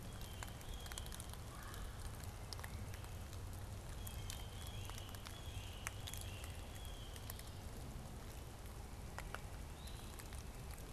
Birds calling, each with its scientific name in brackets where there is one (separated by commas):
Red-bellied Woodpecker (Melanerpes carolinus), Great Crested Flycatcher (Myiarchus crinitus), Blue-headed Vireo (Vireo solitarius), Blue Jay (Cyanocitta cristata)